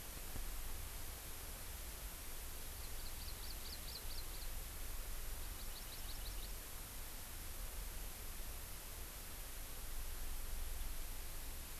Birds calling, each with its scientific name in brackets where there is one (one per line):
Hawaii Amakihi (Chlorodrepanis virens)